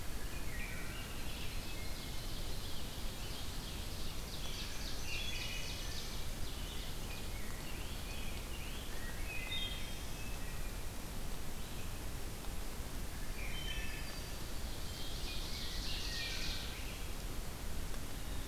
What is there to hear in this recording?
Red-eyed Vireo, Wood Thrush, Rose-breasted Grosbeak, Ovenbird, Black-throated Green Warbler